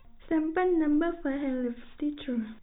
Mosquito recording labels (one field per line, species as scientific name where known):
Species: no mosquito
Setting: cup